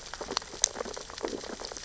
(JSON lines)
{"label": "biophony, stridulation", "recorder": "SoundTrap 600 or HydroMoth"}
{"label": "biophony, sea urchins (Echinidae)", "recorder": "SoundTrap 600 or HydroMoth"}